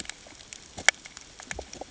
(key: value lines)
label: ambient
recorder: HydroMoth